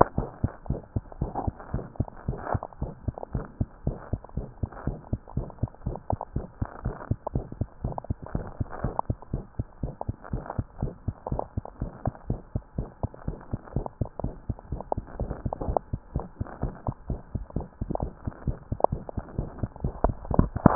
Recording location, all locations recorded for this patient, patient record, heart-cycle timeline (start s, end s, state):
mitral valve (MV)
aortic valve (AV)+mitral valve (MV)
#Age: Infant
#Sex: Male
#Height: 69.0 cm
#Weight: 9.616 kg
#Pregnancy status: False
#Murmur: Present
#Murmur locations: aortic valve (AV)+mitral valve (MV)
#Most audible location: mitral valve (MV)
#Systolic murmur timing: Early-systolic
#Systolic murmur shape: Decrescendo
#Systolic murmur grading: I/VI
#Systolic murmur pitch: Low
#Systolic murmur quality: Blowing
#Diastolic murmur timing: nan
#Diastolic murmur shape: nan
#Diastolic murmur grading: nan
#Diastolic murmur pitch: nan
#Diastolic murmur quality: nan
#Outcome: Abnormal
#Campaign: 2015 screening campaign
0.00	0.16	unannotated
0.16	0.30	S1
0.30	0.40	systole
0.40	0.54	S2
0.54	0.68	diastole
0.68	0.82	S1
0.82	0.92	systole
0.92	1.04	S2
1.04	1.20	diastole
1.20	1.34	S1
1.34	1.44	systole
1.44	1.56	S2
1.56	1.72	diastole
1.72	1.86	S1
1.86	1.96	systole
1.96	2.10	S2
2.10	2.26	diastole
2.26	2.40	S1
2.40	2.52	systole
2.52	2.64	S2
2.64	2.80	diastole
2.80	2.94	S1
2.94	3.04	systole
3.04	3.18	S2
3.18	3.34	diastole
3.34	3.46	S1
3.46	3.56	systole
3.56	3.68	S2
3.68	3.84	diastole
3.84	3.98	S1
3.98	4.08	systole
4.08	4.20	S2
4.20	4.36	diastole
4.36	4.50	S1
4.50	4.60	systole
4.60	4.70	S2
4.70	4.86	diastole
4.86	5.00	S1
5.00	5.08	systole
5.08	5.20	S2
5.20	5.36	diastole
5.36	5.48	S1
5.48	5.58	systole
5.58	5.70	S2
5.70	5.84	diastole
5.84	5.98	S1
5.98	6.08	systole
6.08	6.20	S2
6.20	6.34	diastole
6.34	6.48	S1
6.48	6.58	systole
6.58	6.68	S2
6.68	6.84	diastole
6.84	6.98	S1
6.98	7.06	systole
7.06	7.18	S2
7.18	7.34	diastole
7.34	7.48	S1
7.48	7.58	systole
7.58	7.68	S2
7.68	7.82	diastole
7.82	7.96	S1
7.96	8.06	systole
8.06	8.20	S2
8.20	8.34	diastole
8.34	8.50	S1
8.50	8.56	systole
8.56	8.68	S2
8.68	8.82	diastole
8.82	8.96	S1
8.96	9.06	systole
9.06	9.18	S2
9.18	9.32	diastole
9.32	9.46	S1
9.46	9.58	systole
9.58	9.66	S2
9.66	9.82	diastole
9.82	9.94	S1
9.94	10.08	systole
10.08	10.18	S2
10.18	10.32	diastole
10.32	10.46	S1
10.46	10.54	systole
10.54	10.66	S2
10.66	10.80	diastole
10.80	10.94	S1
10.94	11.04	systole
11.04	11.14	S2
11.14	11.30	diastole
11.30	11.44	S1
11.44	11.56	systole
11.56	11.64	S2
11.64	11.80	diastole
11.80	11.94	S1
11.94	12.04	systole
12.04	12.14	S2
12.14	12.28	diastole
12.28	12.42	S1
12.42	12.54	systole
12.54	12.64	S2
12.64	12.78	diastole
12.78	12.90	S1
12.90	13.00	systole
13.00	13.10	S2
13.10	13.26	diastole
13.26	13.40	S1
13.40	13.52	systole
13.52	13.60	S2
13.60	13.74	diastole
13.74	13.90	S1
13.90	14.00	systole
14.00	14.10	S2
14.10	14.24	diastole
14.24	14.36	S1
14.36	14.48	systole
14.48	14.58	S2
14.58	14.70	diastole
14.70	14.84	S1
14.84	14.96	systole
14.96	15.06	S2
15.06	15.18	diastole
15.18	15.36	S1
15.36	15.42	systole
15.42	15.54	S2
15.54	15.66	diastole
15.66	15.78	S1
15.78	15.92	systole
15.92	16.00	S2
16.00	16.14	diastole
16.14	16.28	S1
16.28	16.40	systole
16.40	16.50	S2
16.50	16.62	diastole
16.62	16.76	S1
16.76	16.84	systole
16.84	16.94	S2
16.94	17.08	diastole
17.08	17.20	S1
17.20	17.34	systole
17.34	17.44	S2
17.44	17.54	diastole
17.54	17.64	S1
17.64	17.80	systole
17.80	17.88	S2
17.88	18.00	diastole
18.00	18.14	S1
18.14	18.26	systole
18.26	18.34	S2
18.34	18.46	diastole
18.46	18.58	S1
18.58	18.68	systole
18.68	18.80	S2
18.80	18.91	diastole
18.91	18.99	S1
18.99	19.16	systole
19.16	19.26	S2
19.26	19.37	diastole
19.37	19.46	S1
19.46	19.58	systole
19.58	19.70	S2
19.70	19.82	diastole
19.82	19.93	S1
19.93	20.06	systole
20.06	20.16	S2
20.16	20.75	unannotated